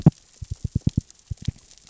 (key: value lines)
label: biophony, knock
recorder: SoundTrap 600 or HydroMoth